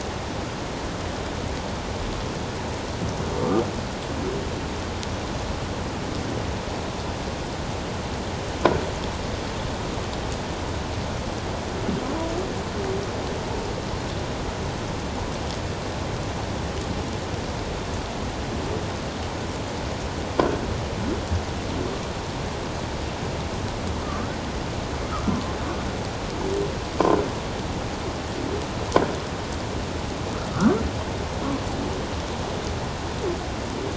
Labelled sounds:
24.0	24.4	humpback whale, 1.0 to 1.6 kHz
30.5	30.8	humpback whale, 1.1 to 1.6 kHz

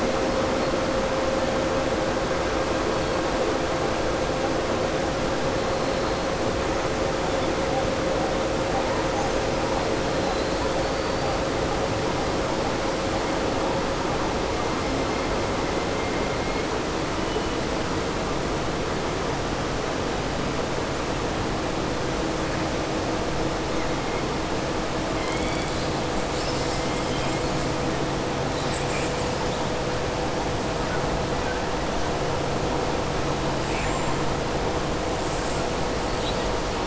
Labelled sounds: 25.1	25.9	killer whale, southern resident, 2.1 to 4.8 kHz

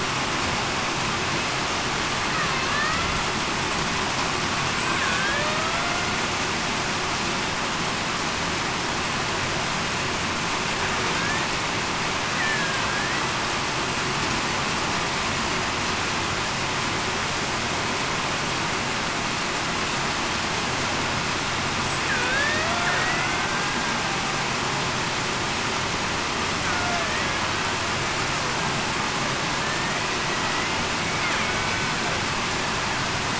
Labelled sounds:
2.7	3.2	killer whale, Bigg's (transient), 1.7 to 2.1 kHz
5.1	5.8	killer whale, Bigg's (transient), 1.2 to 1.8 kHz
12.4	13.2	killer whale, Bigg's (transient), 1.5 to 2.0 kHz
22.1	23.4	killer whale, Bigg's (transient), 0.47 to 2.2 kHz
29.6	30.0	killer whale, Bigg's (transient), 1.7 to 1.9 kHz

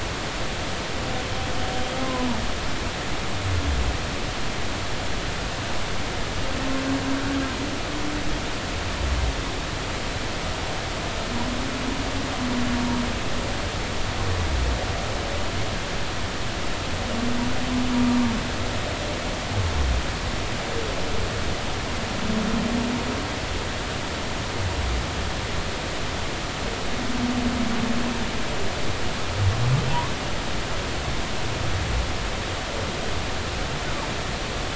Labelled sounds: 2.0	2.3	humpback whale, 0.96 to 1.1 kHz

